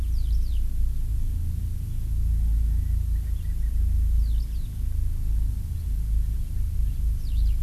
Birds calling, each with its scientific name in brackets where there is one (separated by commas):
Eurasian Skylark (Alauda arvensis), Erckel's Francolin (Pternistis erckelii)